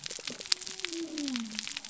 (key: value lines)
label: biophony
recorder: SoundTrap 300